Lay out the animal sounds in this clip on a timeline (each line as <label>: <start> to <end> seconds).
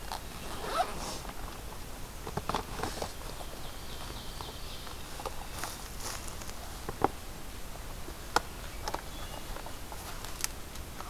Ovenbird (Seiurus aurocapilla): 3.0 to 5.1 seconds
Hermit Thrush (Catharus guttatus): 8.4 to 9.7 seconds